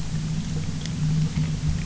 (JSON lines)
{"label": "anthrophony, boat engine", "recorder": "SoundTrap 300"}